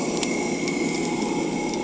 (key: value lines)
label: anthrophony, boat engine
recorder: HydroMoth